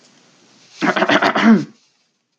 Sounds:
Throat clearing